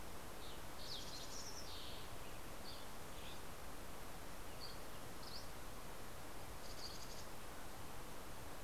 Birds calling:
Fox Sparrow (Passerella iliaca)
Dusky Flycatcher (Empidonax oberholseri)
Mountain Chickadee (Poecile gambeli)

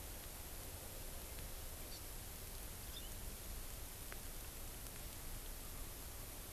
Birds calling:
Hawaii Amakihi (Chlorodrepanis virens)

